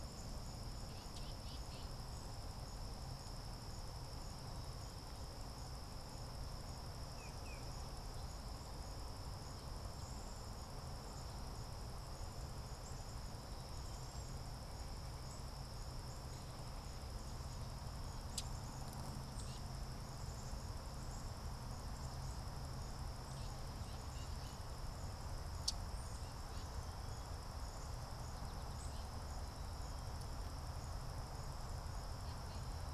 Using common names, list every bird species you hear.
Black-capped Chickadee, Tufted Titmouse, Cedar Waxwing, Common Yellowthroat